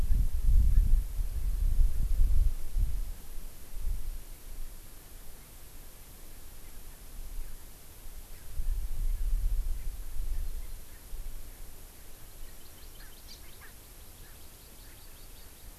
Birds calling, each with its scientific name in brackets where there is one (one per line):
Erckel's Francolin (Pternistis erckelii)
Hawaii Amakihi (Chlorodrepanis virens)